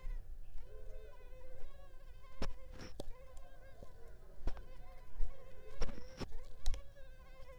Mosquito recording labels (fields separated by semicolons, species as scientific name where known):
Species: Culex pipiens complex; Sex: female; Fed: unfed; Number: one; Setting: cup